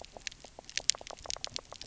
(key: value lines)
label: biophony, knock croak
recorder: SoundTrap 300